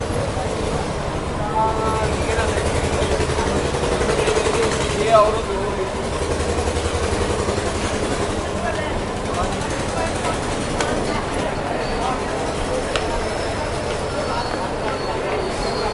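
0.0s A fishing boat engine sputters continuously with a throaty sound. 15.9s
0.0s An echo repeats over bustling market traffic. 15.9s

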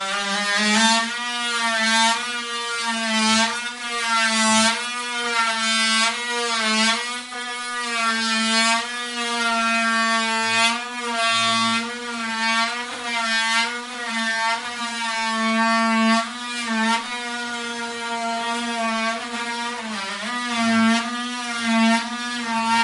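0.2s A high-pitched mechanical whirring sound from an electric drill operating. 22.8s

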